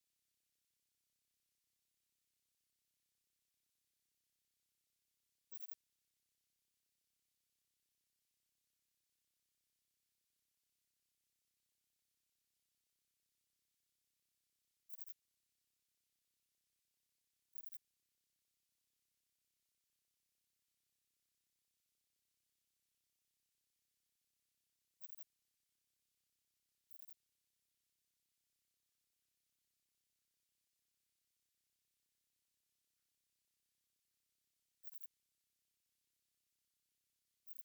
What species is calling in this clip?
Poecilimon chopardi